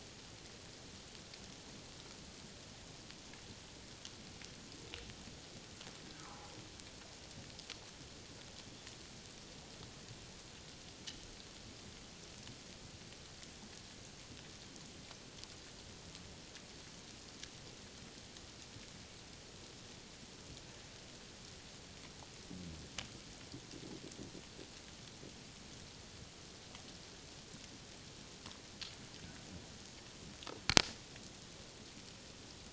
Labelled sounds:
6.2	6.5	humpback whale, 0.91 to 1.4 kHz

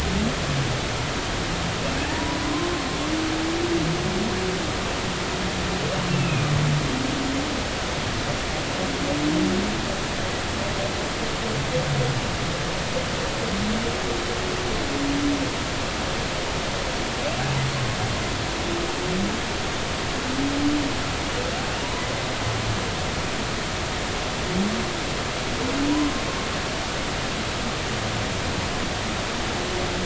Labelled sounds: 2.0	2.4	humpback whale, 0.80 to 1.0 kHz
6.1	6.5	humpback whale, 2.3 to 2.8 kHz
21.8	22.0	humpback whale, 0.90 to 1.1 kHz
25.9	26.1	humpback whale, 0.93 to 1.1 kHz

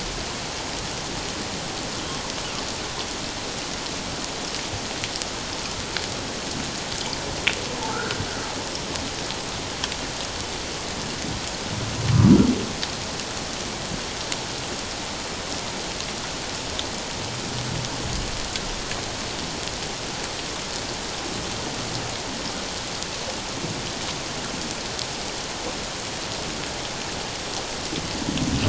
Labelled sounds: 7.9	8.2	humpback whale, 1.2 to 1.6 kHz

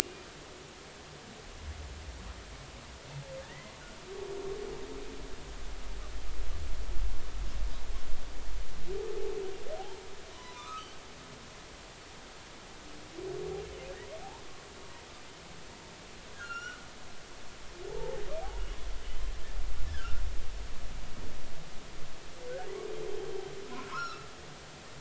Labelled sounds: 3.4	3.7	humpback whale, 1.6 to 2.1 kHz
9.8	10.9	humpback whale, 0.80 to 3.9 kHz
16.3	16.8	humpback whale, 1.2 to 7.3 kHz
17.9	18.2	humpback whale, 0.80 to 0.96 kHz
19.9	20.2	humpback whale, 1.3 to 1.8 kHz
23.8	24.3	humpback whale, 1.2 to 5.7 kHz

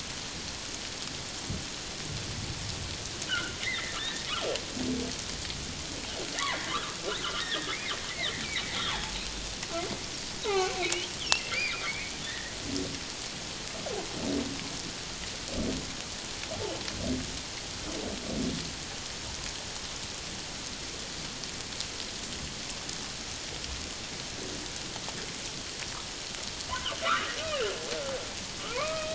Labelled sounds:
3.3	4.3	humpback whale, 1.3 to 2.2 kHz
6.3	7.0	humpback whale, 0.97 to 2.3 kHz
7.4	7.7	humpback whale, 1.6 to 1.9 kHz
8.7	9.1	humpback whale, 0.81 to 3.8 kHz
10.4	12.5	humpback whale, 0.78 to 3.6 kHz
26.7	27.3	humpback whale, 0.94 to 1.7 kHz
28.7	29.1	humpback whale, 0.91 to 2.6 kHz

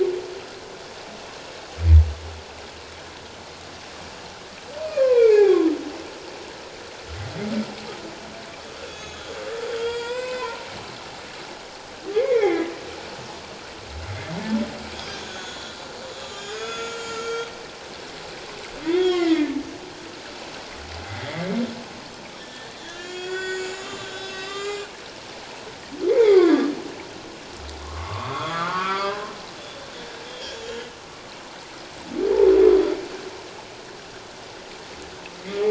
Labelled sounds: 4.9	5.6	humpback whale, 0.78 to 2.6 kHz
8.9	10.7	humpback whale, 0.88 to 7.7 kHz
12.1	12.7	humpback whale, 0.78 to 2.4 kHz
15.2	17.5	humpback whale, 1.3 to 7.4 kHz
18.8	19.6	humpback whale, 1.3 to 4.8 kHz
21.1	21.3	humpback whale, 1.8 to 2.1 kHz
22.4	24.9	humpback whale, 1.0 to 7.3 kHz
26.1	26.7	humpback whale, 1.0 to 3.8 kHz
27.8	29.3	humpback whale, 0.91 to 3.6 kHz
30.3	30.9	humpback whale, 1.6 to 3.4 kHz

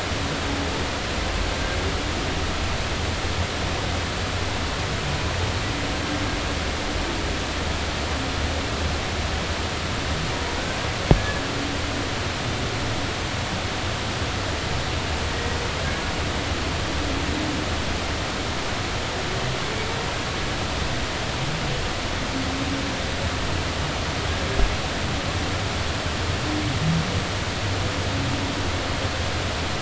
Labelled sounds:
11.2	11.4	humpback whale, 1.6 to 1.8 kHz
15.3	15.6	humpback whale, 1.8 to 2.0 kHz

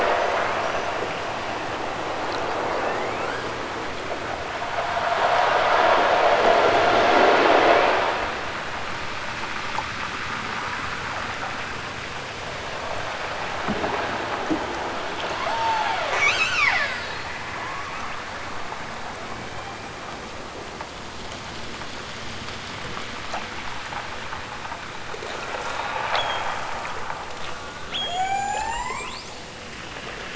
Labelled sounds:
0.3	1.1	killer whale, southern Alaska resident, 1.6 to 6.4 kHz
2.8	3.6	killer whale, southern Alaska resident, 1.4 to 8.0 kHz
7.5	8.1	killer whale, southern Alaska resident, 2.3 to 8.0 kHz
15.4	17.3	killer whale, southern Alaska resident, 0.32 to 8.0 kHz
19.1	20.2	killer whale, southern Alaska resident, 1.3 to 3.7 kHz
25.6	26.5	killer whale, southern Alaska resident, 1.2 to 7.5 kHz
27.3	29.4	killer whale, southern Alaska resident, 0.32 to 8.0 kHz

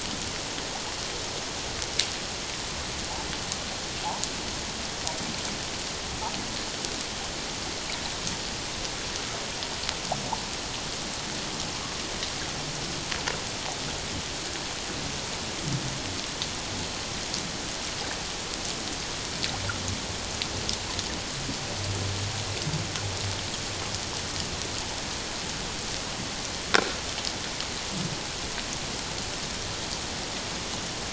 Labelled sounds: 26.7	27.0	click-like sound, 1.3 to 1.6 kHz

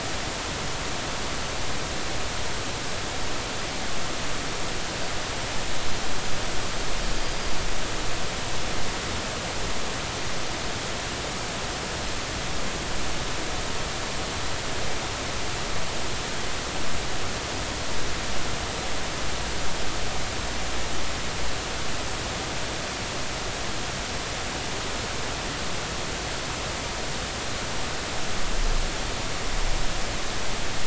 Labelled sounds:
7.1	7.5	Pacific white-sided dolphin, 4.7 to 4.9 kHz

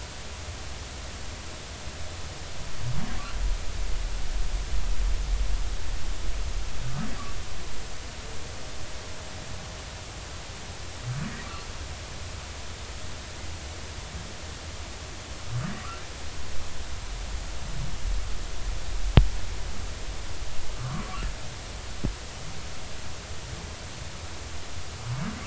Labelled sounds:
20.7	21.0	humpback whale, 0.99 to 1.5 kHz

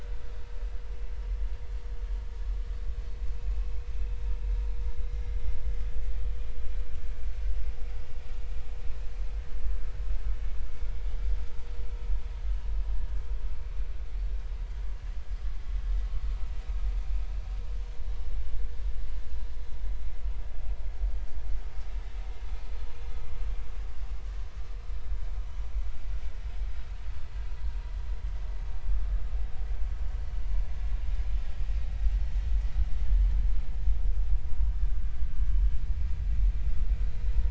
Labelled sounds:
21.0	21.3	vessel noise, 4.7 to 4.9 kHz

